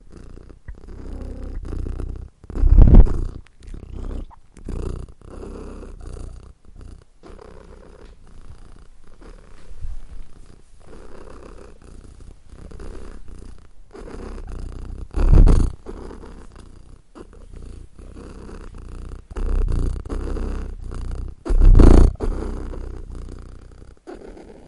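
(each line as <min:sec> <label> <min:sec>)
0:00.0 Snoring repeats closely to the microphone. 0:02.5
0:02.5 Snoring loudly close to the microphone. 0:03.1
0:03.1 Snoring repeats. 0:15.2
0:15.2 Snoring loudly. 0:15.8
0:15.8 Snoring sound, normal and repetitive. 0:21.3
0:21.4 Snoring. 0:24.7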